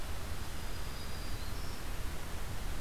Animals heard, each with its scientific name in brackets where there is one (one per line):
Black-throated Green Warbler (Setophaga virens)